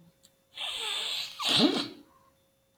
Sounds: Sniff